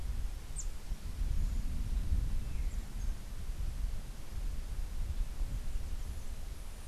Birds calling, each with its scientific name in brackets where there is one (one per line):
Yellow Warbler (Setophaga petechia)